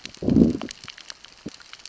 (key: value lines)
label: biophony, growl
recorder: SoundTrap 600 or HydroMoth